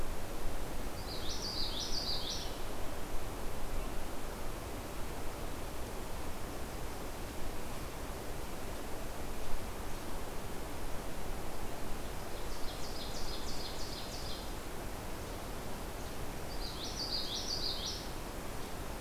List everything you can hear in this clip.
Common Yellowthroat, Ovenbird